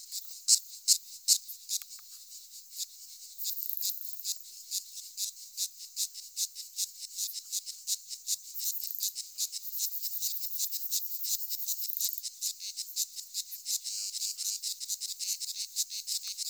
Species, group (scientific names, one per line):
Platycleis affinis
Orthoptera